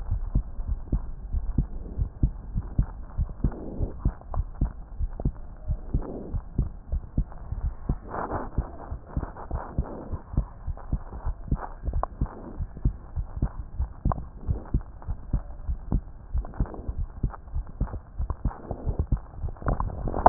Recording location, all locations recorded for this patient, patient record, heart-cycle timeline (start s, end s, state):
aortic valve (AV)
aortic valve (AV)+pulmonary valve (PV)+tricuspid valve (TV)+mitral valve (MV)
#Age: Child
#Sex: Female
#Height: 119.0 cm
#Weight: 19.8 kg
#Pregnancy status: False
#Murmur: Absent
#Murmur locations: nan
#Most audible location: nan
#Systolic murmur timing: nan
#Systolic murmur shape: nan
#Systolic murmur grading: nan
#Systolic murmur pitch: nan
#Systolic murmur quality: nan
#Diastolic murmur timing: nan
#Diastolic murmur shape: nan
#Diastolic murmur grading: nan
#Diastolic murmur pitch: nan
#Diastolic murmur quality: nan
#Outcome: Normal
#Campaign: 2015 screening campaign
0.00	9.84	unannotated
9.84	10.09	diastole
10.09	10.20	S1
10.20	10.36	systole
10.36	10.46	S2
10.46	10.68	diastole
10.68	10.74	S1
10.74	10.84	diastole
10.84	10.92	systole
10.92	11.00	S2
11.00	11.26	diastole
11.26	11.36	S1
11.36	11.50	systole
11.50	11.60	S2
11.60	11.84	diastole
11.84	12.04	S1
12.04	12.20	systole
12.20	12.30	S2
12.30	12.58	diastole
12.58	12.69	S1
12.69	12.83	systole
12.83	12.91	S2
12.91	13.15	diastole
13.15	13.25	S1
13.25	13.40	systole
13.40	13.48	S2
13.48	13.78	diastole
13.78	13.90	S1
13.90	14.04	systole
14.04	14.15	S2
14.15	14.48	diastole
14.48	14.60	S1
14.60	14.74	systole
14.74	14.84	S2
14.84	15.10	diastole
15.10	15.18	S1
15.18	15.34	systole
15.34	15.44	S2
15.44	15.68	diastole
15.68	15.80	S1
15.80	15.94	systole
15.94	16.02	S2
16.02	16.34	diastole
16.34	16.46	S1
16.46	16.60	systole
16.60	16.68	S2
16.68	17.00	diastole
17.00	17.08	S1
17.08	17.22	systole
17.22	17.32	S2
17.32	17.54	diastole
17.54	17.66	S1
17.66	17.82	systole
17.82	17.90	S2
17.90	18.18	diastole
18.18	18.32	S1
18.32	18.44	systole
18.44	18.52	S2
18.52	18.85	diastole
18.85	18.98	S1
18.98	19.12	systole
19.12	19.22	S2
19.22	19.42	diastole
19.42	19.54	S1
19.54	19.66	systole
19.66	19.80	S2
19.80	20.06	diastole
20.06	20.29	unannotated